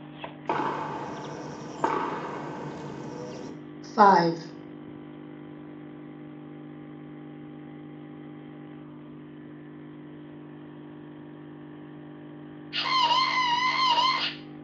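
First, gunfire can be heard. Then a voice says "five." Afterwards, someone screams.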